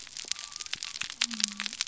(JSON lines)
{"label": "biophony", "recorder": "SoundTrap 300"}